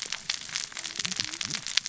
{"label": "biophony, cascading saw", "recorder": "SoundTrap 600 or HydroMoth"}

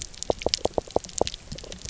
{"label": "biophony, knock", "recorder": "SoundTrap 300"}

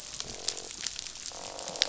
{"label": "biophony, croak", "recorder": "SoundTrap 500"}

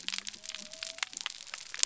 {"label": "biophony", "recorder": "SoundTrap 300"}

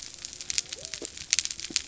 {"label": "biophony", "recorder": "SoundTrap 300"}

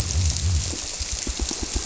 {"label": "biophony", "recorder": "SoundTrap 300"}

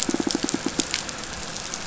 {"label": "anthrophony, boat engine", "recorder": "SoundTrap 500"}
{"label": "biophony, pulse", "recorder": "SoundTrap 500"}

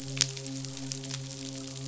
{"label": "biophony, midshipman", "recorder": "SoundTrap 500"}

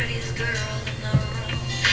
{"label": "anthrophony, boat engine", "recorder": "SoundTrap 300"}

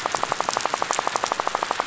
{"label": "biophony, rattle", "recorder": "SoundTrap 500"}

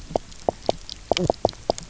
{"label": "biophony, knock croak", "recorder": "SoundTrap 300"}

